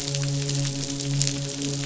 {"label": "biophony, midshipman", "recorder": "SoundTrap 500"}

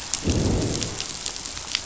{"label": "biophony, growl", "recorder": "SoundTrap 500"}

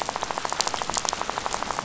{"label": "biophony, rattle", "recorder": "SoundTrap 500"}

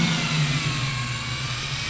{"label": "anthrophony, boat engine", "recorder": "SoundTrap 500"}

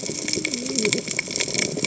{"label": "biophony, cascading saw", "recorder": "HydroMoth"}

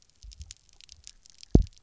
{"label": "biophony, double pulse", "recorder": "SoundTrap 300"}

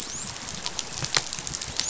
{"label": "biophony, dolphin", "recorder": "SoundTrap 500"}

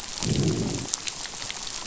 {"label": "biophony, growl", "recorder": "SoundTrap 500"}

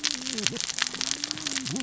{"label": "biophony, cascading saw", "recorder": "SoundTrap 600 or HydroMoth"}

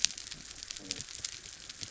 {"label": "biophony", "recorder": "SoundTrap 300"}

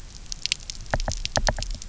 {"label": "biophony, knock", "recorder": "SoundTrap 300"}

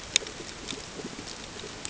{"label": "ambient", "recorder": "HydroMoth"}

